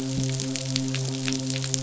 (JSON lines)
{"label": "biophony, midshipman", "recorder": "SoundTrap 500"}